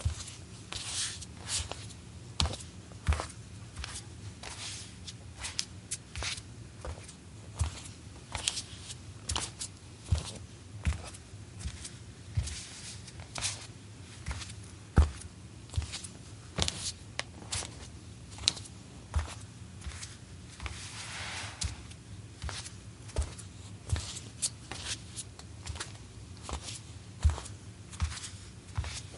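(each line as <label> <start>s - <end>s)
Footsteps in snow. 0.0s - 29.2s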